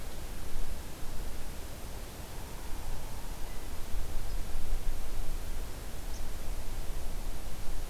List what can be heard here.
Downy Woodpecker